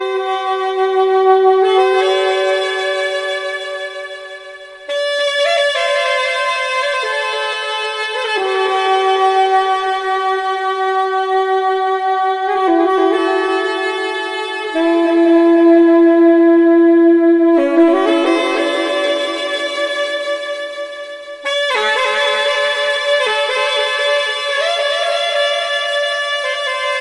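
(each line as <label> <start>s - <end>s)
A saxophone plays a melody with overlapping echoes for each note that fade out. 0.0s - 21.4s
A saxophone plays a melody with intermediate overlapping echoes for each note, ending abruptly. 21.4s - 27.0s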